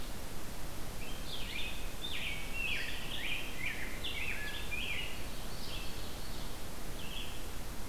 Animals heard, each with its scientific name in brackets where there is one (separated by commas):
Rose-breasted Grosbeak (Pheucticus ludovicianus), Ovenbird (Seiurus aurocapilla), Red-eyed Vireo (Vireo olivaceus)